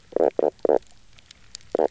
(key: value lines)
label: biophony, knock croak
recorder: SoundTrap 300